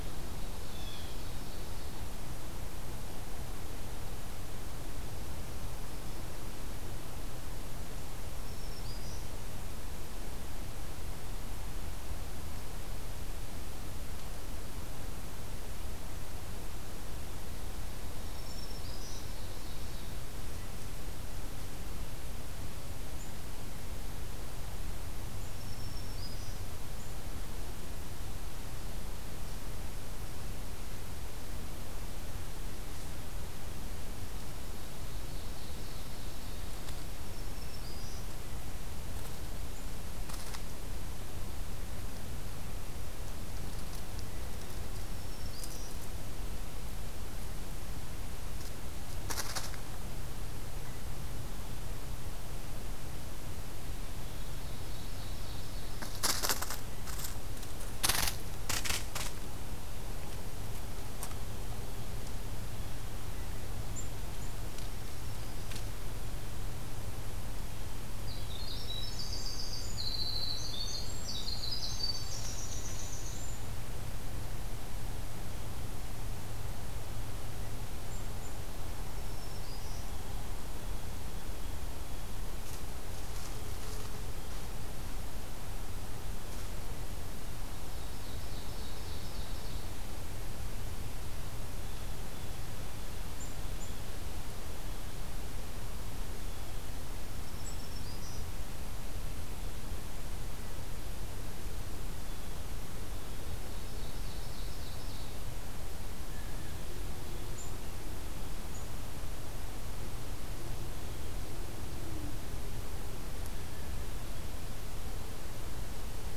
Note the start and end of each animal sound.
[0.00, 1.20] Red-breasted Nuthatch (Sitta canadensis)
[0.35, 2.17] Ovenbird (Seiurus aurocapilla)
[8.30, 9.28] Black-throated Green Warbler (Setophaga virens)
[18.21, 19.21] Black-throated Green Warbler (Setophaga virens)
[18.46, 20.18] Ovenbird (Seiurus aurocapilla)
[25.49, 26.59] Black-throated Green Warbler (Setophaga virens)
[34.71, 37.02] Ovenbird (Seiurus aurocapilla)
[37.11, 38.25] Black-throated Green Warbler (Setophaga virens)
[44.95, 45.96] Black-throated Green Warbler (Setophaga virens)
[54.24, 56.20] Ovenbird (Seiurus aurocapilla)
[64.71, 65.79] Black-throated Green Warbler (Setophaga virens)
[68.19, 73.80] Winter Wren (Troglodytes hiemalis)
[72.09, 73.44] Ovenbird (Seiurus aurocapilla)
[79.16, 80.06] Black-throated Green Warbler (Setophaga virens)
[79.80, 82.37] Blue Jay (Cyanocitta cristata)
[87.78, 89.91] Ovenbird (Seiurus aurocapilla)
[91.79, 94.02] Blue Jay (Cyanocitta cristata)
[96.31, 96.82] Blue Jay (Cyanocitta cristata)
[97.35, 98.48] Black-throated Green Warbler (Setophaga virens)
[102.09, 103.60] Blue Jay (Cyanocitta cristata)
[103.59, 105.56] Ovenbird (Seiurus aurocapilla)
[106.25, 107.03] Blue Jay (Cyanocitta cristata)

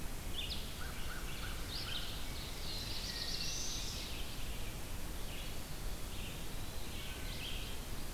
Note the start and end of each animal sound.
[0.26, 8.14] Red-eyed Vireo (Vireo olivaceus)
[0.60, 2.16] American Crow (Corvus brachyrhynchos)
[2.11, 4.19] Black-throated Blue Warbler (Setophaga caerulescens)
[2.99, 3.87] Wood Thrush (Hylocichla mustelina)
[6.71, 7.72] Wood Thrush (Hylocichla mustelina)

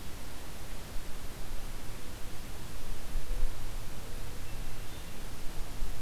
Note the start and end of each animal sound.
[3.23, 4.74] Mourning Dove (Zenaida macroura)
[4.41, 5.37] Hermit Thrush (Catharus guttatus)

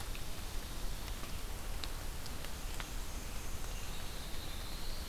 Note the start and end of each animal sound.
[2.42, 3.91] Black-and-white Warbler (Mniotilta varia)
[3.88, 5.08] Black-throated Blue Warbler (Setophaga caerulescens)

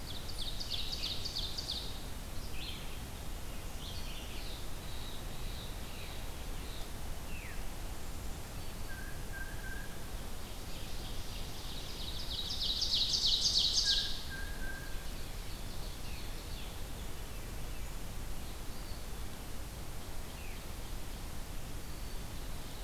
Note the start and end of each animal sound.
[0.00, 2.15] Ovenbird (Seiurus aurocapilla)
[0.00, 5.46] Red-eyed Vireo (Vireo olivaceus)
[4.28, 6.96] Blue Jay (Cyanocitta cristata)
[7.19, 7.62] Veery (Catharus fuscescens)
[8.28, 9.24] Black-throated Green Warbler (Setophaga virens)
[8.73, 10.08] Blue Jay (Cyanocitta cristata)
[10.31, 14.15] Ovenbird (Seiurus aurocapilla)
[13.64, 15.17] Blue Jay (Cyanocitta cristata)
[14.72, 16.89] Ovenbird (Seiurus aurocapilla)
[18.63, 19.40] Eastern Wood-Pewee (Contopus virens)
[19.96, 20.90] Veery (Catharus fuscescens)

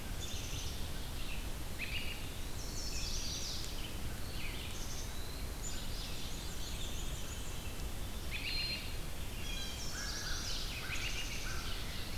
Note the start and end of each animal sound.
[0.00, 12.17] Red-eyed Vireo (Vireo olivaceus)
[0.04, 1.68] Black-capped Chickadee (Poecile atricapillus)
[1.71, 2.25] American Robin (Turdus migratorius)
[1.85, 3.04] Eastern Wood-Pewee (Contopus virens)
[2.44, 3.70] Chestnut-sided Warbler (Setophaga pensylvanica)
[4.21, 5.47] Eastern Wood-Pewee (Contopus virens)
[4.65, 5.18] Black-capped Chickadee (Poecile atricapillus)
[5.56, 7.00] Black-capped Chickadee (Poecile atricapillus)
[6.09, 7.85] Veery (Catharus fuscescens)
[6.24, 7.57] Black-and-white Warbler (Mniotilta varia)
[8.18, 8.98] American Robin (Turdus migratorius)
[9.26, 9.97] Blue Jay (Cyanocitta cristata)
[9.26, 10.66] Chestnut-sided Warbler (Setophaga pensylvanica)
[9.93, 12.17] American Crow (Corvus brachyrhynchos)
[10.62, 11.51] American Robin (Turdus migratorius)
[10.72, 12.01] Black-capped Chickadee (Poecile atricapillus)

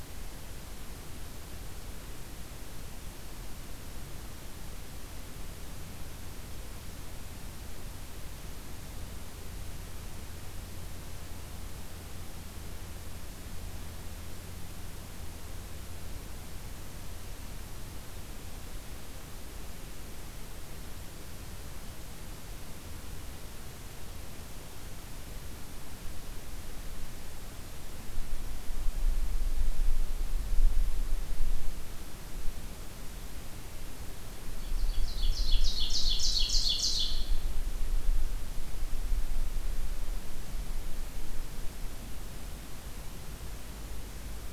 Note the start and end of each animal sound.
[34.48, 37.37] Ovenbird (Seiurus aurocapilla)

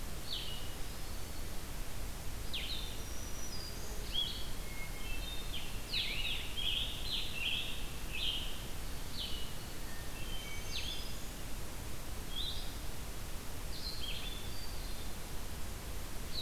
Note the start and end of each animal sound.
[0.00, 16.41] Blue-headed Vireo (Vireo solitarius)
[2.73, 4.29] Black-throated Green Warbler (Setophaga virens)
[4.48, 5.91] Hermit Thrush (Catharus guttatus)
[5.78, 8.84] Scarlet Tanager (Piranga olivacea)
[9.91, 11.29] Hermit Thrush (Catharus guttatus)
[10.02, 11.32] Black-throated Green Warbler (Setophaga virens)
[14.03, 15.24] Hermit Thrush (Catharus guttatus)

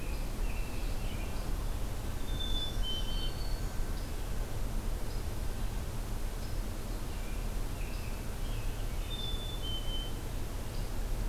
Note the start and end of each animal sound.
[0.00, 1.45] American Robin (Turdus migratorius)
[0.00, 3.58] Red-eyed Vireo (Vireo olivaceus)
[2.14, 3.40] Black-capped Chickadee (Poecile atricapillus)
[2.43, 3.90] Black-throated Green Warbler (Setophaga virens)
[6.98, 9.29] American Robin (Turdus migratorius)
[8.93, 10.23] Black-capped Chickadee (Poecile atricapillus)

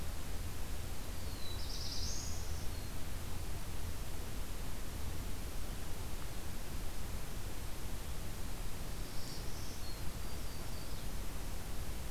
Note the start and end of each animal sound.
[1.04, 2.63] Black-throated Blue Warbler (Setophaga caerulescens)
[8.96, 10.06] Black-throated Green Warbler (Setophaga virens)
[9.95, 11.12] Yellow-rumped Warbler (Setophaga coronata)

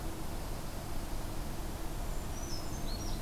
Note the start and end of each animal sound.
[0.10, 1.45] Dark-eyed Junco (Junco hyemalis)
[2.03, 3.21] Brown Creeper (Certhia americana)

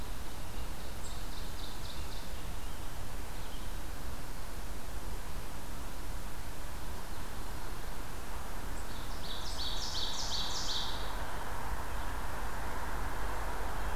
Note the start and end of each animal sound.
[0.64, 2.47] Ovenbird (Seiurus aurocapilla)
[8.88, 11.21] Ovenbird (Seiurus aurocapilla)

